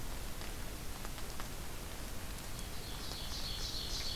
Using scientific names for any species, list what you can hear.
Seiurus aurocapilla